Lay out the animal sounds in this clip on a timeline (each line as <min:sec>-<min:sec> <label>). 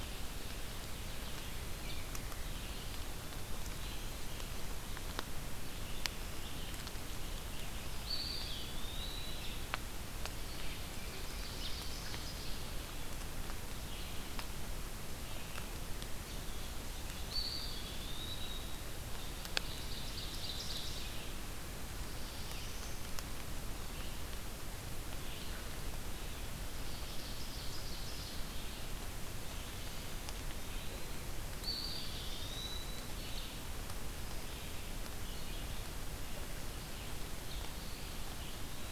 0:00.0-0:38.9 Red-eyed Vireo (Vireo olivaceus)
0:02.3-0:04.5 Eastern Wood-Pewee (Contopus virens)
0:08.0-0:09.8 Eastern Wood-Pewee (Contopus virens)
0:10.6-0:13.1 Ovenbird (Seiurus aurocapilla)
0:17.1-0:18.9 Eastern Wood-Pewee (Contopus virens)
0:19.2-0:21.4 Ovenbird (Seiurus aurocapilla)
0:21.8-0:23.1 Black-throated Blue Warbler (Setophaga caerulescens)
0:26.6-0:28.8 Ovenbird (Seiurus aurocapilla)
0:29.6-0:33.3 Eastern Wood-Pewee (Contopus virens)
0:31.4-0:32.8 Black-throated Blue Warbler (Setophaga caerulescens)
0:37.7-0:38.9 Eastern Wood-Pewee (Contopus virens)